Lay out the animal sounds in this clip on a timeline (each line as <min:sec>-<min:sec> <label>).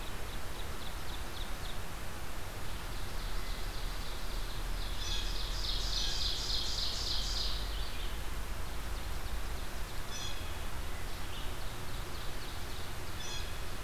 0:00.0-0:01.9 Ovenbird (Seiurus aurocapilla)
0:00.0-0:13.8 Red-eyed Vireo (Vireo olivaceus)
0:02.5-0:07.8 Ovenbird (Seiurus aurocapilla)
0:04.9-0:05.8 Blue Jay (Cyanocitta cristata)
0:08.4-0:10.2 Ovenbird (Seiurus aurocapilla)
0:09.9-0:13.8 Blue Jay (Cyanocitta cristata)
0:10.7-0:13.1 Ovenbird (Seiurus aurocapilla)